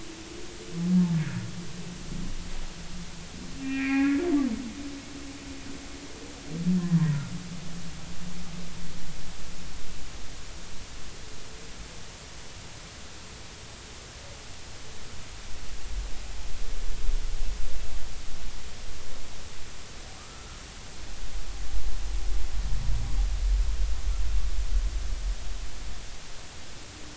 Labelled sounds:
3.6	5.1	humpback whale, 1.0 to 2.8 kHz
6.8	7.1	humpback whale, 0.90 to 1.2 kHz
20.2	20.6	humpback whale, 1.2 to 1.4 kHz

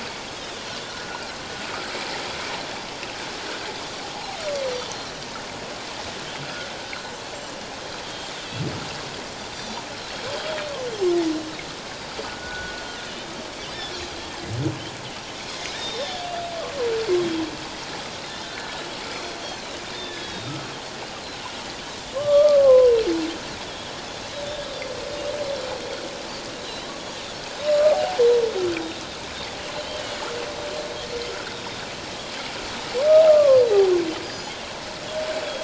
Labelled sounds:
0.4	1.3	Pacific white-sided dolphin, 1.3 to 3.8 kHz
4.1	4.4	humpback whale, 0.78 to 0.97 kHz
8.0	8.3	Pacific white-sided dolphin, 3.1 to 3.3 kHz
9.5	10.6	Pacific white-sided dolphin, 3.0 to 5.9 kHz
12.3	12.8	humpback whale, 1.4 to 1.5 kHz
13.7	14.0	Pacific white-sided dolphin, 3.2 to 3.7 kHz
15.8	16.3	Pacific white-sided dolphin, 3.3 to 3.8 kHz
18.3	18.6	Pacific white-sided dolphin, 3.5 to 3.6 kHz
19.4	20.5	Pacific white-sided dolphin, 1.6 to 4.5 kHz
22.2	23.0	humpback whale, 0.97 to 1.3 kHz
26.6	26.9	Pacific white-sided dolphin, 2.8 to 4.2 kHz
29.8	30.0	Pacific white-sided dolphin, 3.0 to 3.2 kHz
33.3	33.6	humpback whale, 1.0 to 1.4 kHz
34.2	34.5	Pacific white-sided dolphin, 4.8 to 5.2 kHz

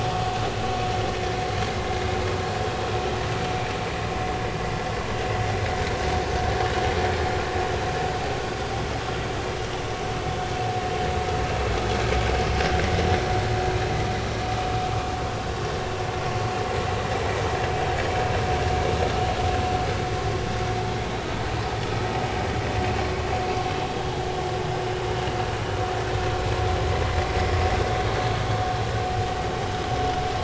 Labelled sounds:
1.7	2.0	vessel noise, 2.0 to 2.1 kHz
14.0	14.3	vessel noise, 5.6 to 5.8 kHz

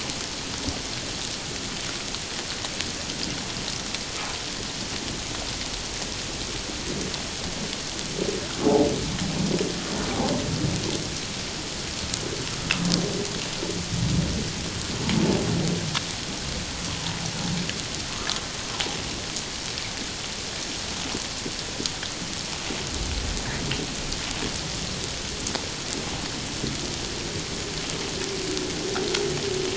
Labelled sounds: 16.9	17.2	humpback whale, 0.91 to 1.2 kHz
18.1	18.4	humpback whale, 1.0 to 1.3 kHz

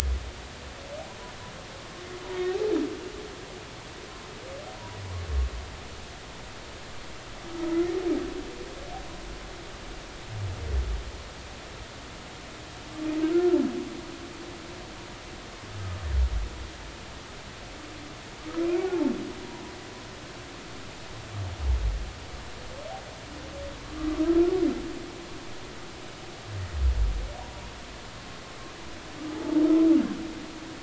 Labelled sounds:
2.3	2.6	humpback whale, 1.8 to 2.0 kHz
13.3	13.6	humpback whale, 1.3 to 1.5 kHz
18.8	19.1	humpback whale, 0.80 to 0.93 kHz
29.3	29.6	humpback whale, 0.80 to 0.93 kHz

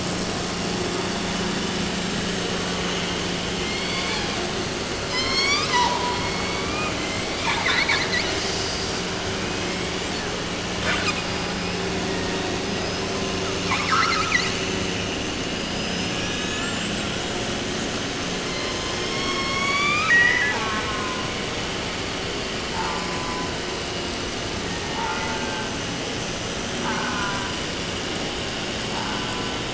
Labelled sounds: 3.6	4.5	killer whale, 0.22 to 5.3 kHz
5.1	6.3	killer whale, southern resident, J pod, call S01, 0.30 to 8.0 kHz
6.3	7.4	killer whale, 0.65 to 8.0 kHz
7.4	9.0	killer whale, southern resident, call S10, 0.30 to 8.0 kHz
9.3	10.4	killer whale, 1.1 to 8.0 kHz
10.8	13.6	killer whale, 0.30 to 8.0 kHz
13.7	14.6	killer whale, southern resident, call S10, 0.30 to 8.0 kHz
15.2	17.4	killer whale, 0.88 to 8.0 kHz
18.4	20.5	killer whale, southern resident, J pod, call S01, 0.30 to 8.0 kHz
20.5	21.4	killer whale, 0.67 to 2.2 kHz
22.7	23.8	killer whale, 0.57 to 1.7 kHz
24.7	25.8	killer whale, 0.68 to 2.6 kHz
26.8	27.7	killer whale, 0.57 to 1.9 kHz
28.9	29.7	killer whale, 0.61 to 1.9 kHz

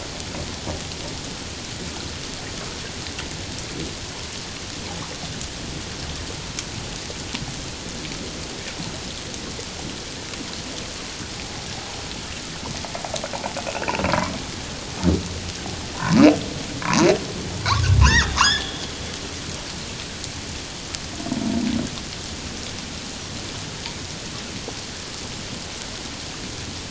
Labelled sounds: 11.4	11.6	humpback whale, 0.78 to 0.88 kHz
13.6	14.0	humpback whale, 2.2 to 2.9 kHz
18.0	18.8	humpback whale, 0.91 to 3.9 kHz

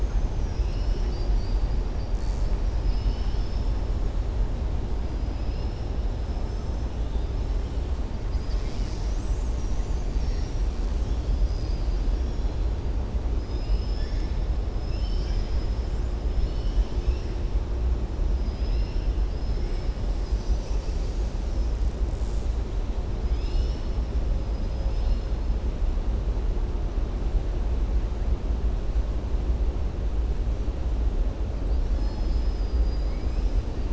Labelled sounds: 2.6	3.7	killer whale, southern resident, 2.4 to 5.7 kHz
5.2	5.8	killer whale, southern resident, 4.2 to 5.6 kHz
11.0	12.0	killer whale, southern resident, 3.2 to 5.8 kHz
16.3	17.3	killer whale, southern resident, 2.6 to 5.7 kHz
24.4	25.3	killer whale, southern resident, 2.7 to 5.7 kHz

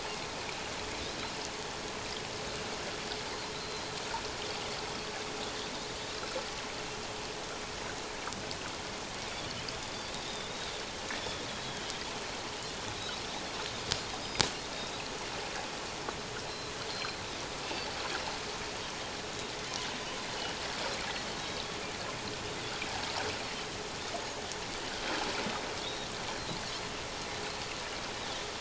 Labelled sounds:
3.6	3.9	Pacific white-sided dolphin, 4.0 to 4.2 kHz
10.2	10.5	Pacific white-sided dolphin, 3.4 to 3.8 kHz
11.2	12.0	Pacific white-sided dolphin, 2.9 to 3.5 kHz
13.0	13.2	Pacific white-sided dolphin, 3.7 to 4.1 kHz
16.5	17.2	Pacific white-sided dolphin, 3.9 to 4.3 kHz
25.8	26.1	Pacific white-sided dolphin, 3.3 to 3.9 kHz

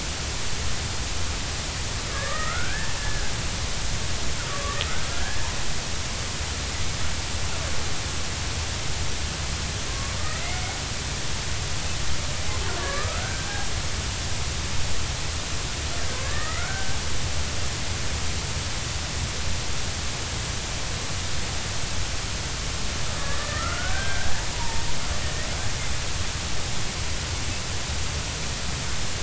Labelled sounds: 2.1	3.3	killer whale, Bigg's (transient), 1.1 to 2.0 kHz
4.5	5.5	killer whale, Bigg's (transient), 1.1 to 1.8 kHz
9.9	10.6	killer whale, Bigg's (transient), 1.0 to 2.2 kHz
12.8	13.7	killer whale, Bigg's (transient), 1.1 to 1.8 kHz
16.2	17.0	killer whale, Bigg's (transient), 1.2 to 2.3 kHz
23.2	24.8	killer whale, Bigg's (transient), 0.86 to 2.0 kHz

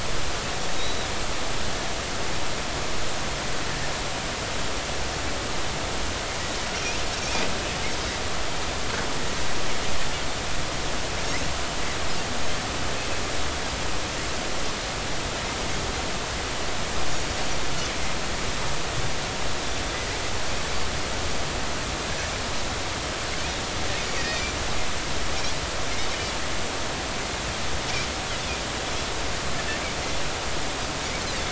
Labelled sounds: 0.7	1.1	Pacific white-sided dolphin, 3.7 to 4.0 kHz
7.2	7.5	Pacific white-sided dolphin, 2.3 to 2.7 kHz
17.1	17.4	Pacific white-sided dolphin, 5.6 to 5.9 kHz
24.2	24.6	Pacific white-sided dolphin, 2.3 to 2.6 kHz

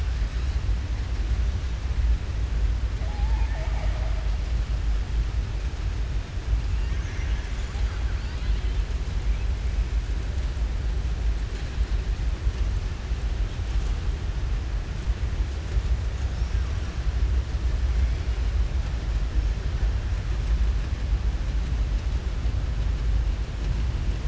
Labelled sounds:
6.7	7.6	killer whale, southern resident, 1.1 to 3.4 kHz

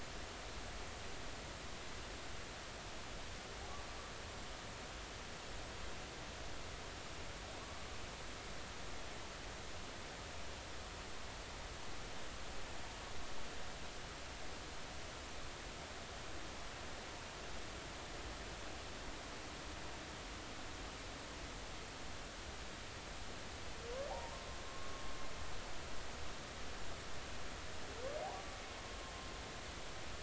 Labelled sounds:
7.6	7.9	humpback whale, 1.0 to 1.2 kHz
24.1	25.0	humpback whale, 0.80 to 1.1 kHz

